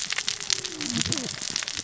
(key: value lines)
label: biophony, cascading saw
recorder: SoundTrap 600 or HydroMoth